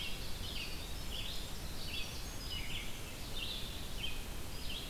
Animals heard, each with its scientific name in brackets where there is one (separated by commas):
Winter Wren (Troglodytes hiemalis), Red-eyed Vireo (Vireo olivaceus)